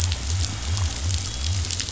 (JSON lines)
{"label": "biophony", "recorder": "SoundTrap 500"}